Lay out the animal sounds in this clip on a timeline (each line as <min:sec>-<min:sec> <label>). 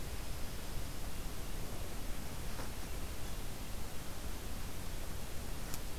0:00.0-0:01.1 Pine Warbler (Setophaga pinus)